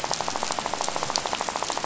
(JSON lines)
{"label": "biophony, rattle", "recorder": "SoundTrap 500"}